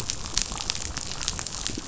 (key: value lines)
label: biophony, chatter
recorder: SoundTrap 500